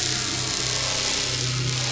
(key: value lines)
label: anthrophony, boat engine
recorder: SoundTrap 500